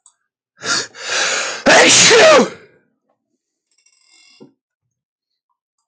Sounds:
Sneeze